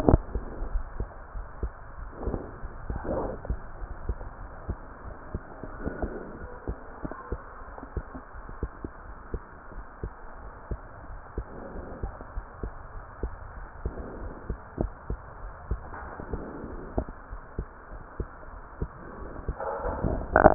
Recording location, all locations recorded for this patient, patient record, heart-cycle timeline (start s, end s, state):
aortic valve (AV)
aortic valve (AV)+pulmonary valve (PV)+tricuspid valve (TV)
#Age: Child
#Sex: Female
#Height: 131.0 cm
#Weight: 44.9 kg
#Pregnancy status: False
#Murmur: Absent
#Murmur locations: nan
#Most audible location: nan
#Systolic murmur timing: nan
#Systolic murmur shape: nan
#Systolic murmur grading: nan
#Systolic murmur pitch: nan
#Systolic murmur quality: nan
#Diastolic murmur timing: nan
#Diastolic murmur shape: nan
#Diastolic murmur grading: nan
#Diastolic murmur pitch: nan
#Diastolic murmur quality: nan
#Outcome: Normal
#Campaign: 2015 screening campaign
0.00	0.30	unannotated
0.30	0.46	S2
0.46	0.72	diastole
0.72	0.88	S1
0.88	0.98	systole
0.98	1.12	S2
1.12	1.34	diastole
1.34	1.48	S1
1.48	1.60	systole
1.60	1.74	S2
1.74	1.98	diastole
1.98	2.12	S1
2.12	2.26	systole
2.26	2.42	S2
2.42	2.62	diastole
2.62	2.72	S1
2.72	2.88	systole
2.88	3.02	S2
3.02	3.20	diastole
3.20	3.34	S1
3.34	3.48	systole
3.48	3.62	S2
3.62	3.80	diastole
3.80	3.88	S1
3.88	4.02	systole
4.02	4.18	S2
4.18	4.40	diastole
4.40	4.52	S1
4.52	4.66	systole
4.66	4.78	S2
4.78	5.06	diastole
5.06	5.16	S1
5.16	5.32	systole
5.32	5.42	S2
5.42	5.70	diastole
5.70	5.82	S1
5.82	6.00	systole
6.00	6.14	S2
6.14	6.40	diastole
6.40	6.50	S1
6.50	6.66	systole
6.66	6.76	S2
6.76	7.00	diastole
7.00	7.12	S1
7.12	7.28	systole
7.28	7.40	S2
7.40	7.66	diastole
7.66	7.74	S1
7.74	7.92	systole
7.92	8.06	S2
8.06	8.36	diastole
8.36	8.46	S1
8.46	8.58	systole
8.58	8.76	S2
8.76	9.06	diastole
9.06	9.16	S1
9.16	9.32	systole
9.32	9.44	S2
9.44	9.72	diastole
9.72	9.84	S1
9.84	10.04	systole
10.04	10.16	S2
10.16	10.44	diastole
10.44	10.52	S1
10.52	10.68	systole
10.68	10.84	S2
10.84	11.10	diastole
11.10	11.20	S1
11.20	11.36	systole
11.36	11.48	S2
11.48	11.74	diastole
11.74	11.86	S1
11.86	12.02	systole
12.02	12.14	S2
12.14	12.34	diastole
12.34	12.46	S1
12.46	12.62	systole
12.62	12.74	S2
12.74	12.96	diastole
12.96	13.04	S1
13.04	13.22	systole
13.22	13.34	S2
13.34	13.56	diastole
13.56	13.68	S1
13.68	13.82	systole
13.82	13.98	S2
13.98	14.20	diastole
14.20	14.32	S1
14.32	14.48	systole
14.48	14.58	S2
14.58	14.78	diastole
14.78	14.92	S1
14.92	15.08	systole
15.08	15.20	S2
15.20	15.44	diastole
15.44	15.54	S1
15.54	15.68	systole
15.68	15.82	S2
15.82	16.02	diastole
16.02	16.10	S1
16.10	16.28	systole
16.28	16.42	S2
16.42	16.70	diastole
16.70	16.80	S1
16.80	16.96	systole
16.96	17.08	S2
17.08	17.32	diastole
17.32	17.42	S1
17.42	17.56	systole
17.56	17.68	S2
17.68	17.92	diastole
17.92	18.02	S1
18.02	18.18	systole
18.18	18.28	S2
18.28	18.52	diastole
18.52	18.60	S1
18.60	18.74	systole
18.74	18.90	S2
18.90	19.18	diastole
19.18	19.32	S1
19.32	19.46	systole
19.46	19.56	S2
19.56	19.80	diastole
19.80	20.54	unannotated